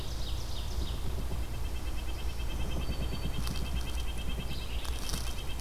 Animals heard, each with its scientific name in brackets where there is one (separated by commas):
Red-breasted Nuthatch (Sitta canadensis), Yellow-bellied Sapsucker (Sphyrapicus varius), Red-eyed Vireo (Vireo olivaceus), Broad-winged Hawk (Buteo platypterus), Ovenbird (Seiurus aurocapilla)